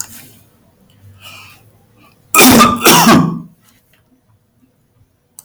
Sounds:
Cough